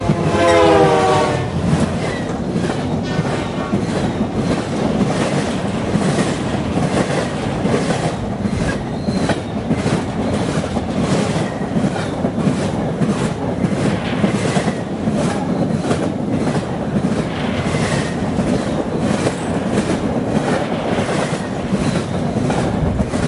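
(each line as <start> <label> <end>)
0.0 A train passes by, honking loudly. 1.9
1.9 A freight train passes by on rails. 23.3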